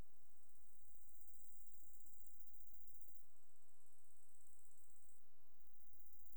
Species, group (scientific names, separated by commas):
Stethophyma grossum, Orthoptera